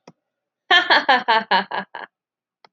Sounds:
Laughter